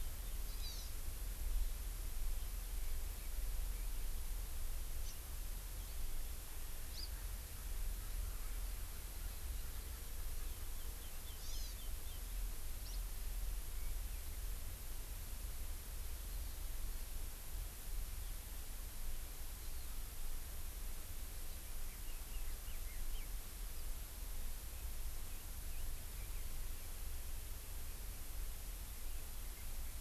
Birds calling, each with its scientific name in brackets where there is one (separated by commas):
Red-billed Leiothrix (Leiothrix lutea), Hawaii Amakihi (Chlorodrepanis virens), House Finch (Haemorhous mexicanus)